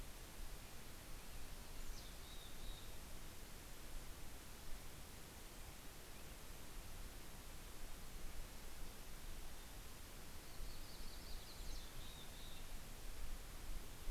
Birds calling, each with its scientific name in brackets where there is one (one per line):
Yellow-rumped Warbler (Setophaga coronata)
Mountain Chickadee (Poecile gambeli)